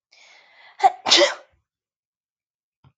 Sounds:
Sneeze